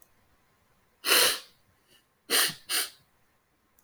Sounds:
Sniff